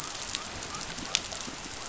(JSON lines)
{"label": "biophony", "recorder": "SoundTrap 500"}